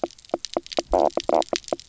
{"label": "biophony, knock croak", "recorder": "SoundTrap 300"}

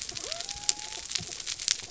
{"label": "biophony", "recorder": "SoundTrap 300"}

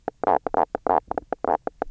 {"label": "biophony, knock croak", "recorder": "SoundTrap 300"}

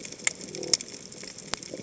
{"label": "biophony", "recorder": "HydroMoth"}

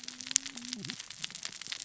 {"label": "biophony, cascading saw", "recorder": "SoundTrap 600 or HydroMoth"}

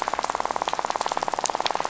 {"label": "biophony, rattle", "recorder": "SoundTrap 500"}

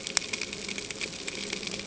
{"label": "ambient", "recorder": "HydroMoth"}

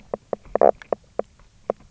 {"label": "biophony, knock croak", "recorder": "SoundTrap 300"}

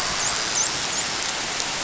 {"label": "biophony, dolphin", "recorder": "SoundTrap 500"}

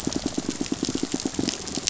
{"label": "biophony, pulse", "recorder": "SoundTrap 500"}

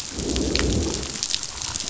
{"label": "biophony, growl", "recorder": "SoundTrap 500"}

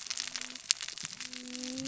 {"label": "biophony, cascading saw", "recorder": "SoundTrap 600 or HydroMoth"}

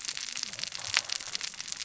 {"label": "biophony, cascading saw", "recorder": "SoundTrap 600 or HydroMoth"}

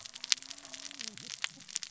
{"label": "biophony, cascading saw", "recorder": "SoundTrap 600 or HydroMoth"}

